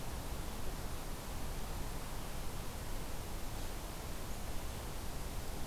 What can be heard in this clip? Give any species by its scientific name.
forest ambience